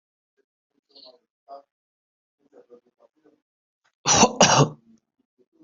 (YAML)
expert_labels:
- quality: ok
  cough_type: unknown
  dyspnea: false
  wheezing: false
  stridor: false
  choking: false
  congestion: false
  nothing: true
  diagnosis: lower respiratory tract infection
  severity: mild